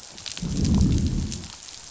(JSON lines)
{"label": "biophony, growl", "recorder": "SoundTrap 500"}